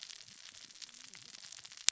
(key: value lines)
label: biophony, cascading saw
recorder: SoundTrap 600 or HydroMoth